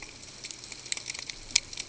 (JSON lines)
{"label": "ambient", "recorder": "HydroMoth"}